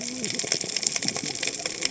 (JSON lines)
{"label": "biophony, cascading saw", "recorder": "HydroMoth"}